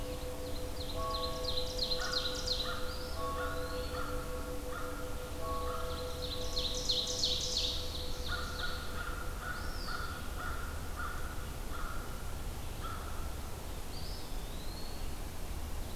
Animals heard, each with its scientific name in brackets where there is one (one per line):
Eastern Wood-Pewee (Contopus virens)
Ovenbird (Seiurus aurocapilla)
American Crow (Corvus brachyrhynchos)